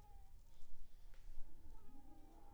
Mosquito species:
Anopheles arabiensis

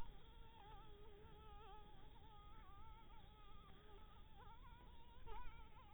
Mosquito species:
Anopheles dirus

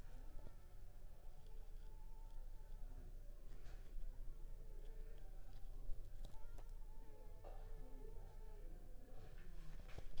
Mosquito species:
Anopheles funestus s.s.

